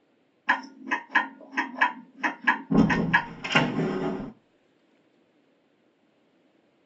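At 0.47 seconds, a clock can be heard. Over it, at 2.7 seconds, a wooden door opens. A faint, even noise lies in the background.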